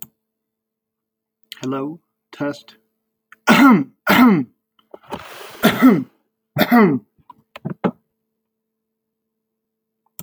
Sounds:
Cough